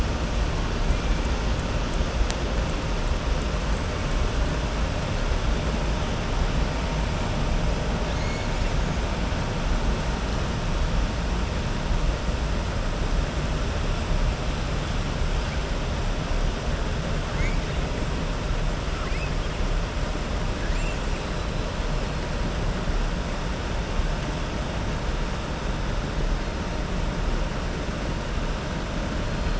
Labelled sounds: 18.9	19.3	killer whale, southern resident, 1.1 to 2.7 kHz
20.6	21.0	killer whale, southern resident, 1.6 to 2.9 kHz

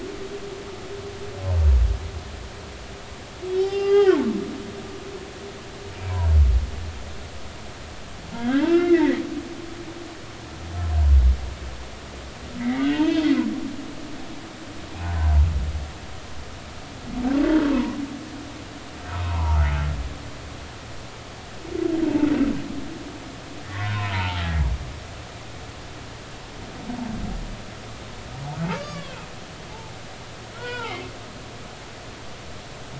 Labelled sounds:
3.5	4.8	humpback whale, 0.80 to 5.2 kHz
8.3	9.2	humpback whale, 1.3 to 2.8 kHz
12.6	13.3	humpback whale, 0.83 to 3.3 kHz
17.7	18.0	humpback whale, 0.90 to 1.1 kHz
19.2	19.8	humpback whale, 0.83 to 1.5 kHz
23.6	24.7	humpback whale, 0.83 to 2.0 kHz
28.7	29.1	humpback whale, 1.0 to 4.8 kHz
30.5	31.1	humpback whale, 0.80 to 3.5 kHz

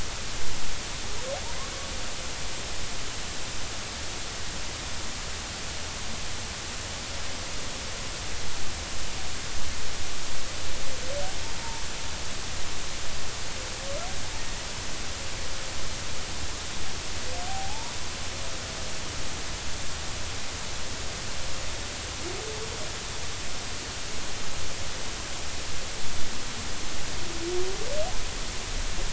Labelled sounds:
11.6	11.8	humpback whale, 0.86 to 0.96 kHz
17.5	17.9	humpback whale, 0.80 to 1.0 kHz

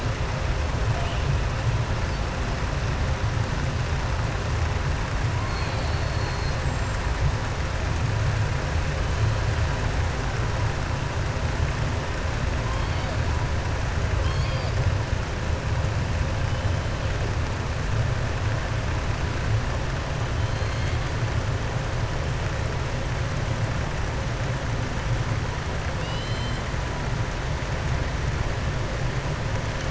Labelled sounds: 5.4	7.0	killer whale, southern resident, 1.4 to 8.0 kHz
20.4	21.1	killer whale, southern resident, 3.2 to 4.8 kHz
25.9	26.6	killer whale, southern resident, 2.7 to 5.1 kHz

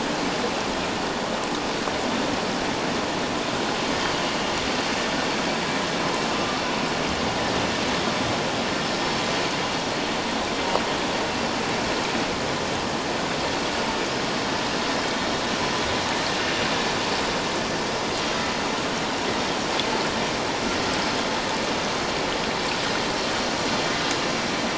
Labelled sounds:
6.3	6.6	vessel noise, 1.1 to 1.3 kHz

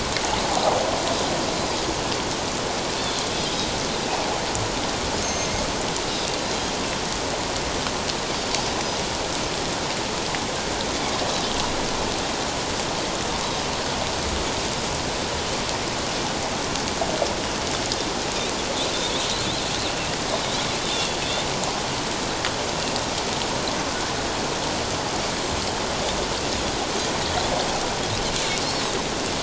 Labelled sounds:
5.2	5.5	Pacific white-sided dolphin, 6.2 to 6.5 kHz
20.8	21.2	Pacific white-sided dolphin, 3.2 to 3.8 kHz

